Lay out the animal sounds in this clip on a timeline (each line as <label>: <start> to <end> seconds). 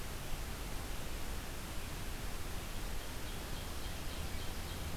Ovenbird (Seiurus aurocapilla): 2.8 to 5.0 seconds